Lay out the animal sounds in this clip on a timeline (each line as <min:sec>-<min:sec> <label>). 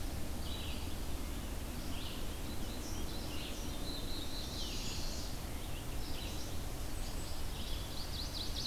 0:00.4-0:08.7 Red-eyed Vireo (Vireo olivaceus)
0:02.3-0:05.2 Black-throated Blue Warbler (Setophaga caerulescens)
0:04.2-0:05.6 Northern Parula (Setophaga americana)
0:06.9-0:08.7 Chestnut-sided Warbler (Setophaga pensylvanica)